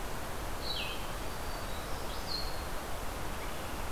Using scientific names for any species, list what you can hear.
Vireo solitarius, Setophaga virens